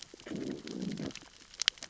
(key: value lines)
label: biophony, growl
recorder: SoundTrap 600 or HydroMoth